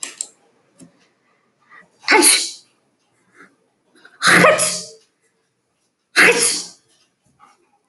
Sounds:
Sneeze